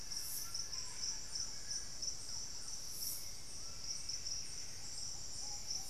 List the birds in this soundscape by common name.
Plain-winged Antshrike, Thrush-like Wren, Buff-breasted Wren, Hauxwell's Thrush, Ruddy Pigeon, White-throated Toucan, unidentified bird